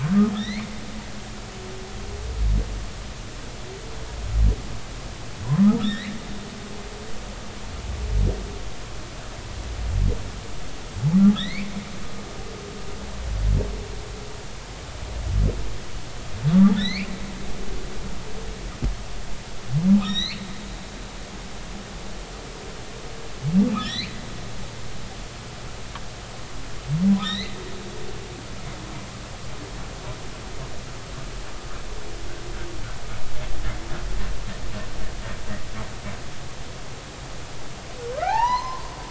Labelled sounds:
0.3	0.7	humpback whale, 1.7 to 4.4 kHz
5.8	6.1	humpback whale, 1.5 to 4.2 kHz
11.3	11.7	humpback whale, 1.6 to 4.7 kHz
16.7	17.1	humpback whale, 1.7 to 4.6 kHz
20.0	20.4	humpback whale, 1.8 to 7.6 kHz
23.8	24.1	humpback whale, 1.7 to 6.2 kHz
27.2	27.6	humpback whale, 1.8 to 4.4 kHz
38.1	38.9	humpback whale, 0.80 to 4.3 kHz

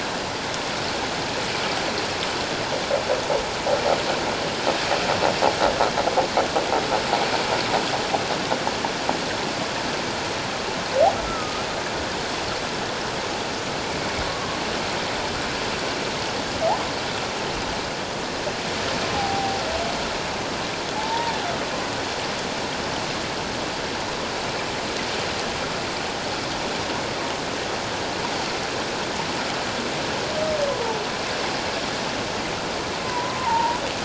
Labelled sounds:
11.2	11.6	humpback whale, 1.2 to 1.4 kHz
14.2	14.6	humpback whale, 1.0 to 1.2 kHz
19.1	19.6	humpback whale, 0.78 to 0.88 kHz
20.9	21.3	humpback whale, 0.81 to 0.97 kHz
33.0	33.8	humpback whale, 0.84 to 1.1 kHz

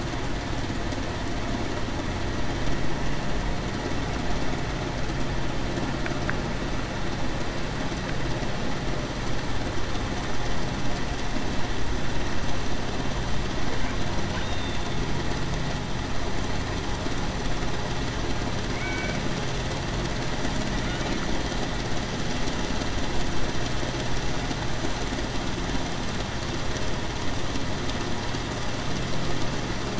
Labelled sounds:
14.4	14.8	killer whale, Bigg's (transient), 3.5 to 3.8 kHz
18.7	19.2	killer whale, Bigg's (transient), 1.5 to 2.3 kHz

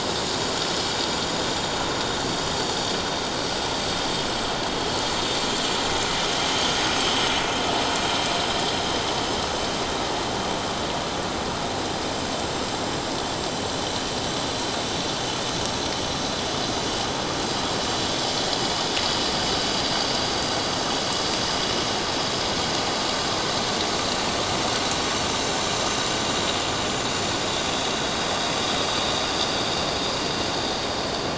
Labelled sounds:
1.1	1.7	vessel noise, 5.7 to 7.4 kHz
2.2	2.4	vessel noise, 4.4 to 4.6 kHz

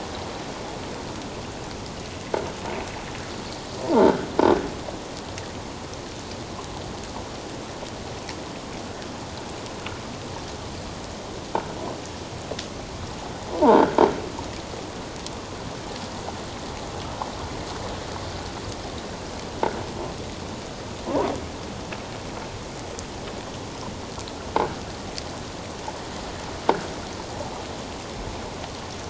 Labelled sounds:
3.8	4.2	croaking sound likely from a nearby submerged object, 0.81 to 1.8 kHz
13.5	13.9	croaking sound likely from a nearby submerged object, 0.78 to 1.1 kHz
21.1	21.3	croaking sound likely from a nearby submerged object, 0.78 to 1.2 kHz

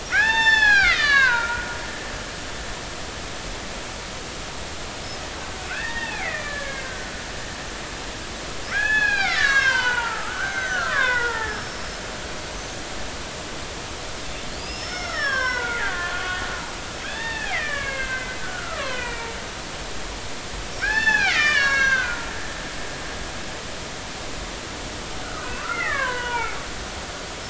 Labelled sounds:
0.1	1.7	killer whale, Bigg's (transient), 0.80 to 7.2 kHz
5.6	7.1	killer whale, Bigg's (transient), 0.80 to 2.8 kHz
8.7	11.8	killer whale, Bigg's (transient), 0.80 to 6.9 kHz
14.5	16.1	killer whale, Bigg's (transient), 0.93 to 5.8 kHz
17.0	19.3	killer whale, Bigg's (transient), 0.83 to 3.7 kHz
20.8	22.3	killer whale, Bigg's (transient), 0.80 to 6.2 kHz
25.2	26.6	killer whale, Bigg's (transient), 0.80 to 3.2 kHz

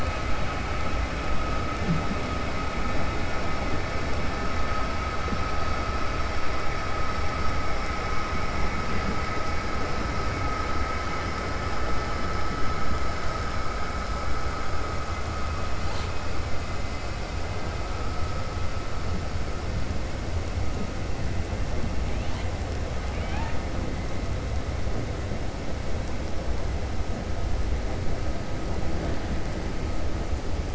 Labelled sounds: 23.0	23.6	killer whale, 0.78 to 3.6 kHz

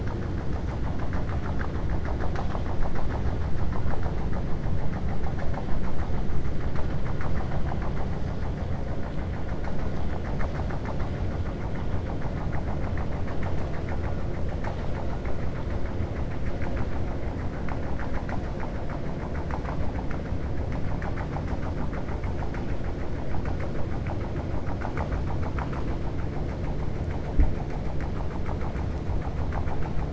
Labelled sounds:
1.0	1.7	vessel noise, 0.64 to 2.8 kHz

